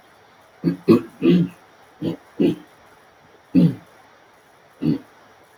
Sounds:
Throat clearing